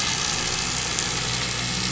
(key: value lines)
label: anthrophony, boat engine
recorder: SoundTrap 500